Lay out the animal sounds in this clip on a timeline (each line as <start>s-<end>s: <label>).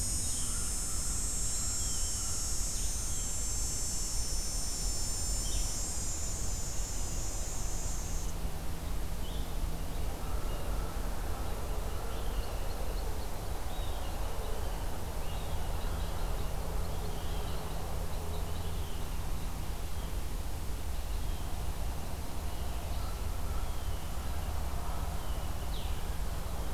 0.2s-3.6s: American Crow (Corvus brachyrhynchos)
1.6s-3.4s: Blue Jay (Cyanocitta cristata)
5.0s-26.7s: Blue-headed Vireo (Vireo solitarius)
11.2s-18.9s: Red Crossbill (Loxia curvirostra)